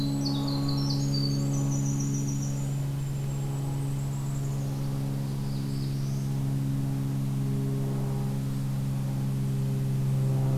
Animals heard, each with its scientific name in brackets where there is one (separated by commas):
Winter Wren (Troglodytes hiemalis), Golden-crowned Kinglet (Regulus satrapa), Northern Parula (Setophaga americana)